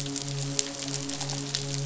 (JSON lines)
{"label": "biophony, midshipman", "recorder": "SoundTrap 500"}